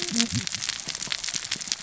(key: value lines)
label: biophony, cascading saw
recorder: SoundTrap 600 or HydroMoth